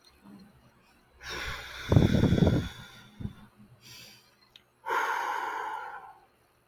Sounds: Sigh